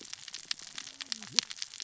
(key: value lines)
label: biophony, cascading saw
recorder: SoundTrap 600 or HydroMoth